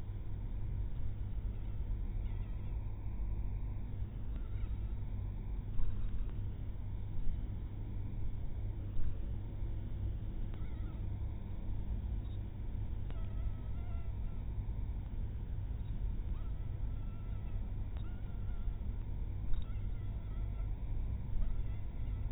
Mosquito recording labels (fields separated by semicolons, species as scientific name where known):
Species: mosquito; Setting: cup